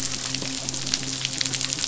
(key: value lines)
label: biophony, midshipman
recorder: SoundTrap 500